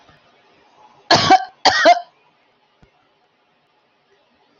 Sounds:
Cough